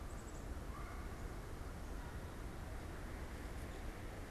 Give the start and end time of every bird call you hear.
[0.00, 1.40] Black-capped Chickadee (Poecile atricapillus)

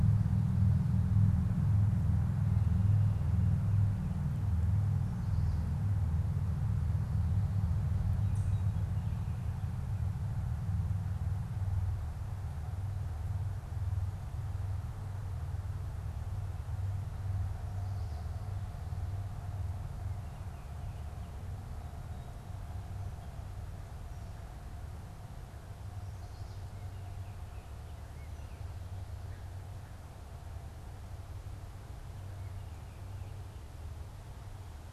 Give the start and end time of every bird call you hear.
[8.07, 8.97] unidentified bird
[26.48, 28.77] Baltimore Oriole (Icterus galbula)

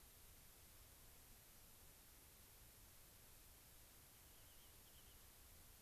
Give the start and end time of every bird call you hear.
[4.05, 5.25] Rock Wren (Salpinctes obsoletus)

